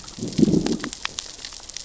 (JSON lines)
{"label": "biophony, growl", "recorder": "SoundTrap 600 or HydroMoth"}